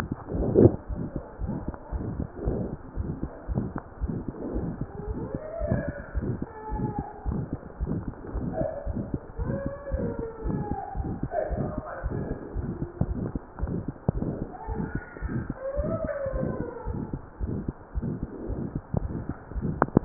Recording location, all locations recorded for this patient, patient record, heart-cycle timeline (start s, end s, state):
pulmonary valve (PV)
aortic valve (AV)+pulmonary valve (PV)+tricuspid valve (TV)+mitral valve (MV)
#Age: Child
#Sex: Male
#Height: 108.0 cm
#Weight: 18.6 kg
#Pregnancy status: False
#Murmur: Present
#Murmur locations: aortic valve (AV)+mitral valve (MV)+pulmonary valve (PV)+tricuspid valve (TV)
#Most audible location: aortic valve (AV)
#Systolic murmur timing: Mid-systolic
#Systolic murmur shape: Diamond
#Systolic murmur grading: III/VI or higher
#Systolic murmur pitch: Medium
#Systolic murmur quality: Harsh
#Diastolic murmur timing: nan
#Diastolic murmur shape: nan
#Diastolic murmur grading: nan
#Diastolic murmur pitch: nan
#Diastolic murmur quality: nan
#Outcome: Abnormal
#Campaign: 2015 screening campaign
0.00	0.77	unannotated
0.77	0.84	diastole
0.84	0.96	S1
0.96	1.10	systole
1.10	1.24	S2
1.24	1.35	diastole
1.35	1.47	S1
1.47	1.66	systole
1.66	1.74	S2
1.74	1.92	diastole
1.92	2.01	S1
2.01	2.18	systole
2.18	2.25	S2
2.25	2.43	diastole
2.43	2.54	S1
2.54	2.70	systole
2.70	2.77	S2
2.77	2.96	diastole
2.96	3.14	S1
3.14	3.22	systole
3.22	3.32	S2
3.32	3.45	diastole
3.45	3.56	S1
3.56	3.74	systole
3.74	3.82	S2
3.82	4.01	diastole
4.01	4.09	S1
4.09	4.26	systole
4.26	4.36	S2
4.36	4.53	diastole
4.53	4.62	S1
4.62	4.78	systole
4.78	4.88	S2
4.88	5.08	diastole
5.08	5.22	S1
5.22	5.32	systole
5.32	5.42	S2
5.42	5.60	diastole
5.60	5.68	S1
5.68	5.86	systole
5.86	5.96	S2
5.96	6.15	diastole
6.15	6.22	S1
6.22	6.40	systole
6.40	6.50	S2
6.50	6.72	diastole
6.72	6.79	S1
6.79	6.96	systole
6.96	7.06	S2
7.06	7.25	diastole
7.25	7.34	S1
7.34	7.50	systole
7.50	7.60	S2
7.60	7.79	diastole
7.79	7.88	S1
7.88	8.06	systole
8.06	8.14	S2
8.14	8.34	diastole
8.34	8.42	S1
8.42	8.58	systole
8.58	8.68	S2
8.68	8.85	diastole
8.85	8.94	S1
8.94	9.12	systole
9.12	9.22	S2
9.22	9.38	diastole
9.38	9.48	S1
9.48	9.64	systole
9.64	9.74	S2
9.74	9.91	diastole
9.91	10.01	S1
10.01	10.16	systole
10.16	10.25	S2
10.25	10.45	diastole
10.45	10.53	S1
10.53	10.68	systole
10.68	10.77	S2
10.77	10.96	diastole
10.96	11.05	S1
11.05	11.20	systole
11.20	11.32	S2
11.32	11.48	diastole
11.48	11.60	S1
11.60	11.76	systole
11.76	11.86	S2
11.86	12.04	diastole
12.04	12.12	S1
12.12	12.30	systole
12.30	12.40	S2
12.40	12.55	diastole
12.55	12.63	S1
12.63	12.80	systole
12.80	12.90	S2
12.90	13.08	diastole
13.08	13.24	S1
13.24	13.32	systole
13.32	13.42	S2
13.42	13.60	diastole
13.60	13.68	S1
13.68	13.86	systole
13.86	13.96	S2
13.96	14.15	diastole
14.15	14.21	S1
14.21	14.41	systole
14.41	14.48	S2
14.48	14.69	diastole
14.69	14.78	S1
14.78	14.96	systole
14.96	15.04	S2
15.04	15.23	diastole
15.23	15.30	S1
15.30	15.48	systole
15.48	15.58	S2
15.58	15.78	diastole
15.78	15.84	S1
15.84	16.02	systole
16.02	16.12	S2
16.12	16.34	diastole
16.34	16.50	S1
16.50	16.58	systole
16.58	16.68	S2
16.68	16.88	diastole
16.88	16.94	S1
16.94	17.12	systole
17.12	17.22	S2
17.22	17.39	diastole
17.39	17.49	S1
17.49	17.66	systole
17.66	17.76	S2
17.76	17.96	diastole
17.96	18.05	S1
18.05	18.20	systole
18.20	18.30	S2
18.30	18.50	diastole
18.50	18.66	S1
18.66	18.74	systole
18.74	18.84	S2
18.84	19.04	diastole
19.04	19.22	S1
19.22	19.30	systole
19.30	19.38	S2
19.38	19.56	diastole
19.56	20.05	unannotated